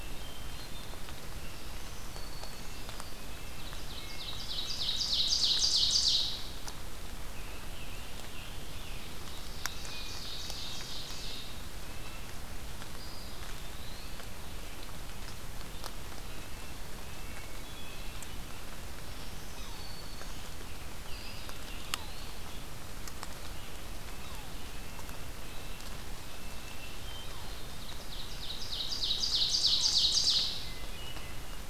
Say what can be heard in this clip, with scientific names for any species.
Catharus guttatus, Setophaga virens, Sitta canadensis, Seiurus aurocapilla, Piranga olivacea, Contopus virens, Sphyrapicus varius